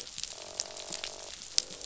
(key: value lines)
label: biophony, croak
recorder: SoundTrap 500